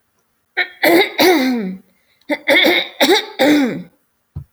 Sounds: Throat clearing